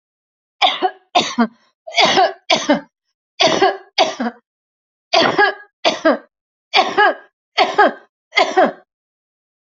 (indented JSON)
{
  "expert_labels": [
    {
      "quality": "ok",
      "cough_type": "dry",
      "dyspnea": false,
      "wheezing": false,
      "stridor": false,
      "choking": false,
      "congestion": false,
      "nothing": true,
      "diagnosis": "healthy cough",
      "severity": "pseudocough/healthy cough"
    }
  ],
  "age": 58,
  "gender": "female",
  "respiratory_condition": false,
  "fever_muscle_pain": false,
  "status": "symptomatic"
}